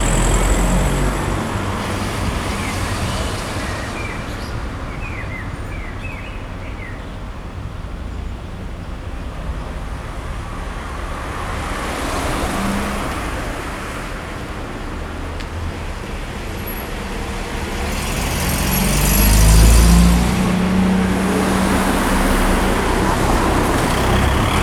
Are balloons popping?
no